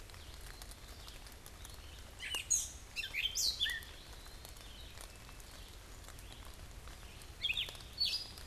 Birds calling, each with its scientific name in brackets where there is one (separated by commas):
Gray Catbird (Dumetella carolinensis), Red-eyed Vireo (Vireo olivaceus), Eastern Wood-Pewee (Contopus virens)